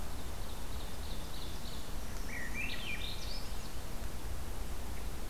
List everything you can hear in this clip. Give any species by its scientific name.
Seiurus aurocapilla, Certhia americana, Catharus ustulatus